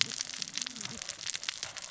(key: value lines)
label: biophony, cascading saw
recorder: SoundTrap 600 or HydroMoth